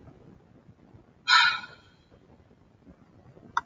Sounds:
Sigh